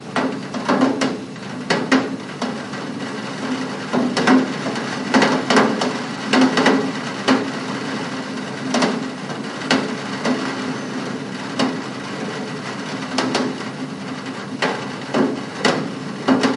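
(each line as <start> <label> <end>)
0.0 Raindrops hitting a metal windowsill. 16.6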